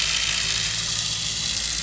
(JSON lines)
{"label": "anthrophony, boat engine", "recorder": "SoundTrap 500"}